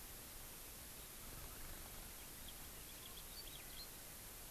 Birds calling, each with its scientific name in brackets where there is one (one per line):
House Finch (Haemorhous mexicanus)